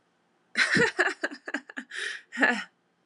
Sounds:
Laughter